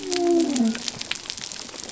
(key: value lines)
label: biophony
recorder: SoundTrap 300